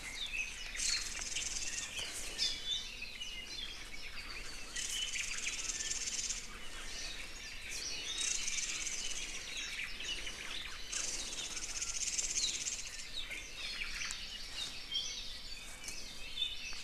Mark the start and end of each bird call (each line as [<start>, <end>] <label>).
[0.70, 1.90] Red-billed Leiothrix (Leiothrix lutea)
[4.70, 6.50] Red-billed Leiothrix (Leiothrix lutea)
[4.90, 5.60] Omao (Myadestes obscurus)
[8.10, 9.60] Red-billed Leiothrix (Leiothrix lutea)
[9.70, 10.50] Omao (Myadestes obscurus)
[10.90, 13.10] Red-billed Leiothrix (Leiothrix lutea)
[12.30, 12.60] Apapane (Himatione sanguinea)
[13.10, 13.30] Apapane (Himatione sanguinea)
[13.60, 14.20] Omao (Myadestes obscurus)
[13.70, 15.40] Hawaii Amakihi (Chlorodrepanis virens)